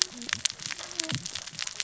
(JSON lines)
{"label": "biophony, cascading saw", "recorder": "SoundTrap 600 or HydroMoth"}